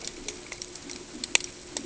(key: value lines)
label: ambient
recorder: HydroMoth